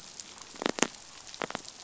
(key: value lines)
label: biophony
recorder: SoundTrap 500